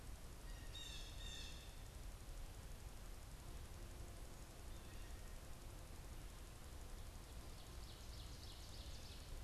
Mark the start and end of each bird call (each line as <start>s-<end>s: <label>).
0.5s-1.7s: Blue Jay (Cyanocitta cristata)
7.2s-9.3s: Ovenbird (Seiurus aurocapilla)